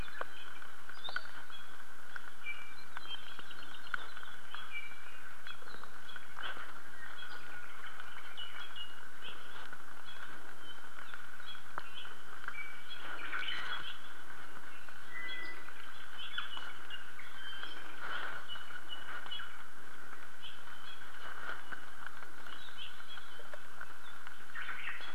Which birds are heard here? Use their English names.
Hawaii Akepa, Iiwi, Omao